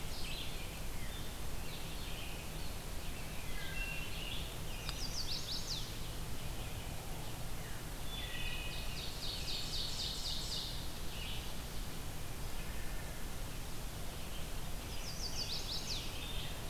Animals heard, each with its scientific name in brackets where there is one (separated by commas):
Red-eyed Vireo (Vireo olivaceus), Chestnut-sided Warbler (Setophaga pensylvanica), Blackburnian Warbler (Setophaga fusca), Wood Thrush (Hylocichla mustelina), American Robin (Turdus migratorius), Veery (Catharus fuscescens), Ovenbird (Seiurus aurocapilla)